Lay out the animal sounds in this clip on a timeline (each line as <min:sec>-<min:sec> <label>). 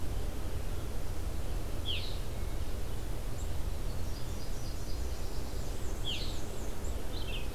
0:01.7-0:02.2 Red-eyed Vireo (Vireo olivaceus)
0:04.0-0:05.8 Nashville Warbler (Leiothlypis ruficapilla)
0:05.4-0:07.0 Black-and-white Warbler (Mniotilta varia)
0:06.0-0:06.4 Red-eyed Vireo (Vireo olivaceus)
0:07.1-0:07.5 Red-eyed Vireo (Vireo olivaceus)